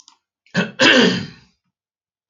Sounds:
Throat clearing